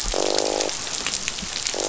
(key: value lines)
label: biophony, croak
recorder: SoundTrap 500